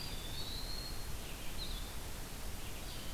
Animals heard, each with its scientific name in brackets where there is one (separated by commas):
Red-eyed Vireo (Vireo olivaceus), Blue-headed Vireo (Vireo solitarius), Eastern Wood-Pewee (Contopus virens)